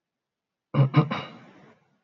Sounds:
Throat clearing